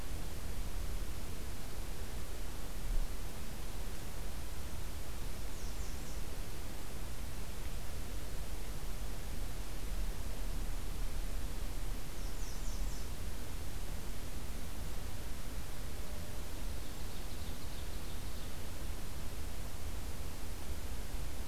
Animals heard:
American Redstart (Setophaga ruticilla), Ovenbird (Seiurus aurocapilla)

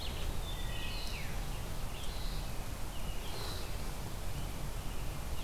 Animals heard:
Wood Thrush (Hylocichla mustelina), Red-eyed Vireo (Vireo olivaceus)

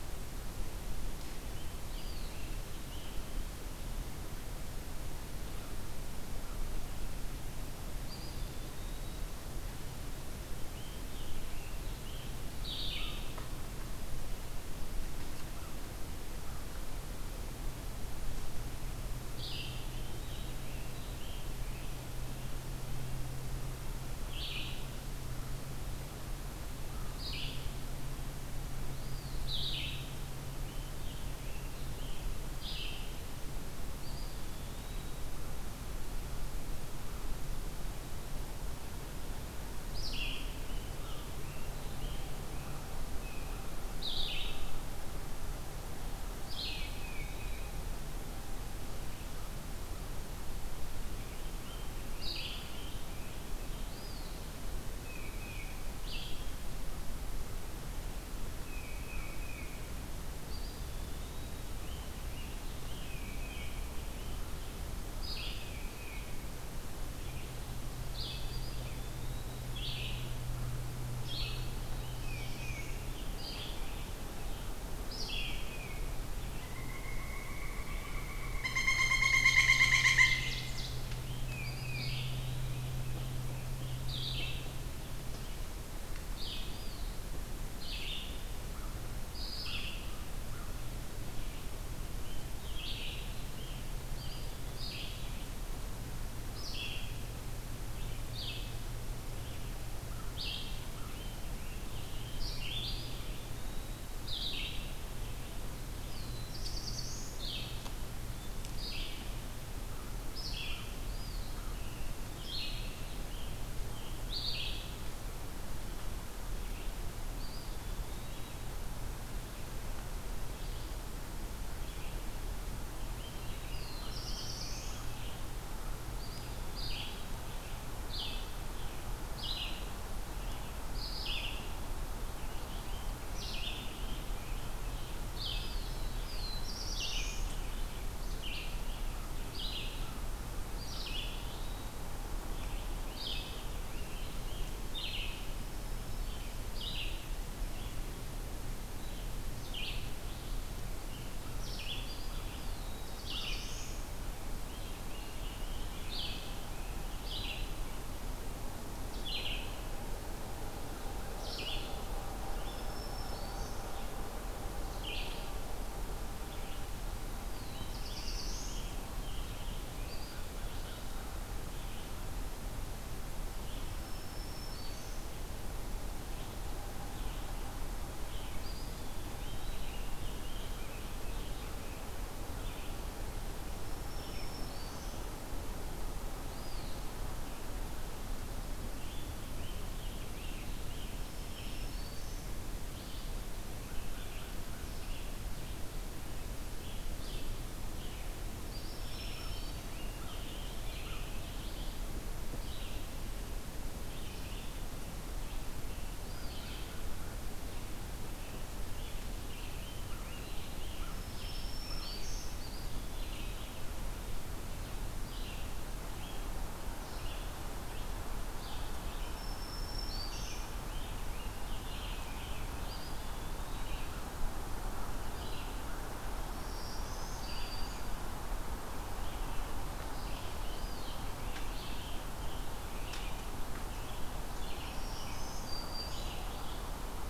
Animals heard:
Red-breasted Nuthatch (Sitta canadensis), Black-throated Green Warbler (Setophaga virens), Black-throated Blue Warbler (Setophaga caerulescens), Red-eyed Vireo (Vireo olivaceus), Eastern Wood-Pewee (Contopus virens), Ovenbird (Seiurus aurocapilla), American Crow (Corvus brachyrhynchos), Tufted Titmouse (Baeolophus bicolor), Pileated Woodpecker (Dryocopus pileatus), Scarlet Tanager (Piranga olivacea)

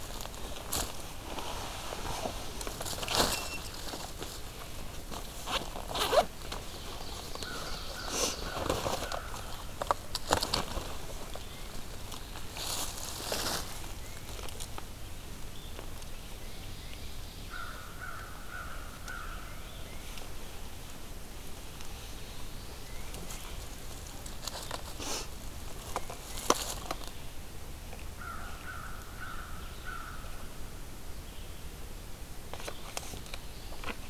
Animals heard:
Ovenbird (Seiurus aurocapilla), Red-eyed Vireo (Vireo olivaceus), American Crow (Corvus brachyrhynchos), Tufted Titmouse (Baeolophus bicolor), Black-throated Blue Warbler (Setophaga caerulescens)

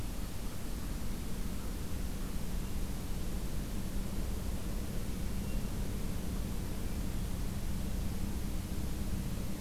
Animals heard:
Hermit Thrush (Catharus guttatus), American Crow (Corvus brachyrhynchos)

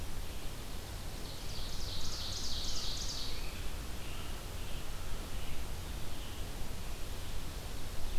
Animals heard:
Red-eyed Vireo (Vireo olivaceus), Ovenbird (Seiurus aurocapilla), American Robin (Turdus migratorius)

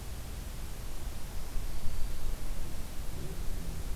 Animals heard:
Black-throated Green Warbler (Setophaga virens)

